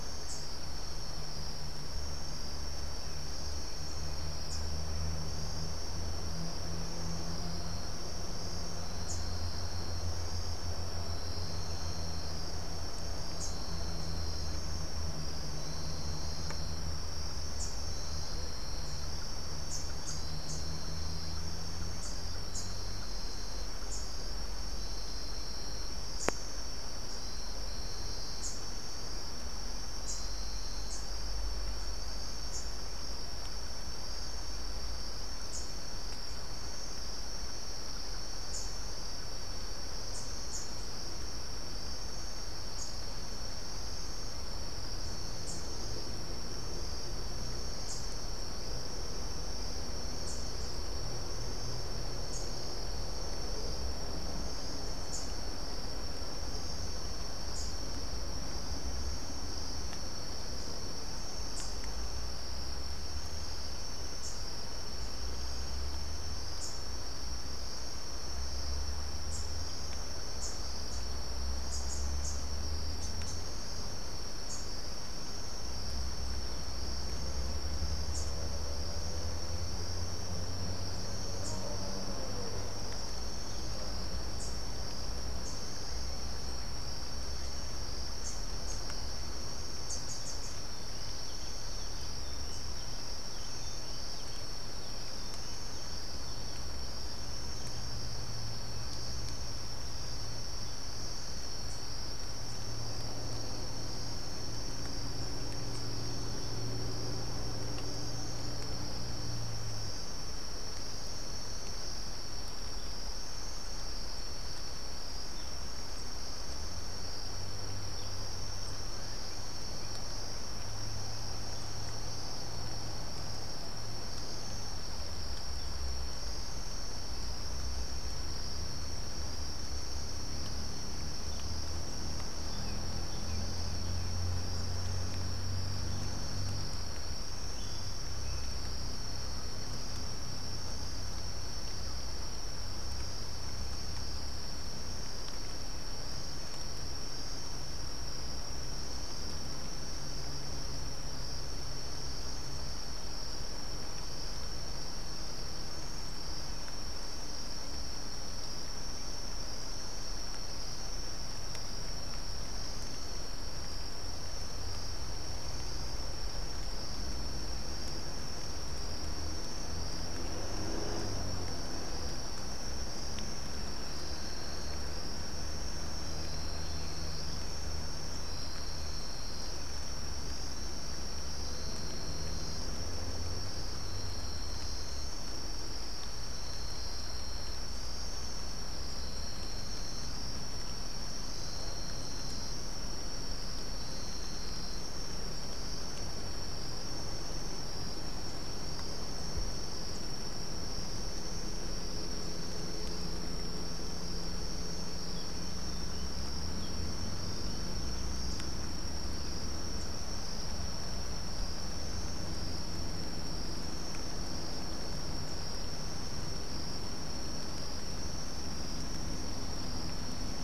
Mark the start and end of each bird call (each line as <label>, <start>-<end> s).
Rufous-capped Warbler (Basileuterus rufifrons), 0.0-4.9 s
Rufous-capped Warbler (Basileuterus rufifrons), 9.0-20.8 s
Rufous-capped Warbler (Basileuterus rufifrons), 21.9-35.8 s
Rufous-capped Warbler (Basileuterus rufifrons), 38.2-48.1 s
Rufous-capped Warbler (Basileuterus rufifrons), 50.2-64.5 s
Rufous-capped Warbler (Basileuterus rufifrons), 66.5-78.4 s
Rufous-capped Warbler (Basileuterus rufifrons), 81.3-90.8 s